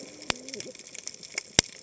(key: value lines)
label: biophony, cascading saw
recorder: HydroMoth